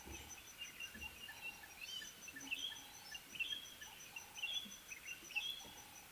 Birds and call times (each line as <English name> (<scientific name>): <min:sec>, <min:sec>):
White-browed Robin-Chat (Cossypha heuglini): 0:04.5